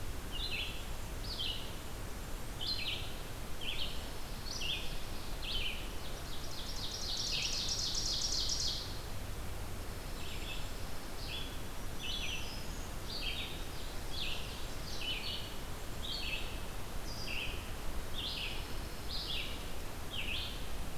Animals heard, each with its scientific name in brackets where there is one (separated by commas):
Pine Warbler (Setophaga pinus), Black-throated Green Warbler (Setophaga virens), Red-eyed Vireo (Vireo olivaceus), Ovenbird (Seiurus aurocapilla)